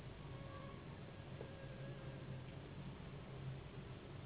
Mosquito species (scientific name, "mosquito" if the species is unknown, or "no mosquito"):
Anopheles gambiae s.s.